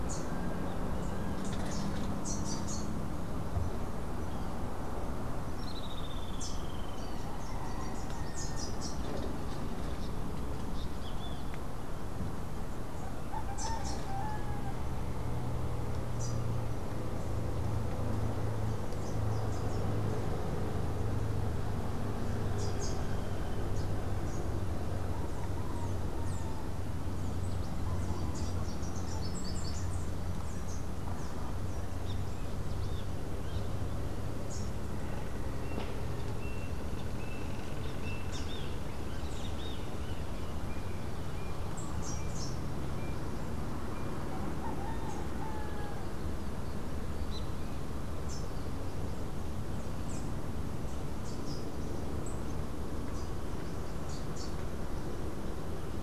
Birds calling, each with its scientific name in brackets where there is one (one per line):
Melodious Blackbird (Dives dives)
Streak-headed Woodcreeper (Lepidocolaptes souleyetii)
Rufous-capped Warbler (Basileuterus rufifrons)
Great Kiskadee (Pitangus sulphuratus)